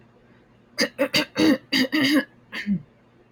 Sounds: Throat clearing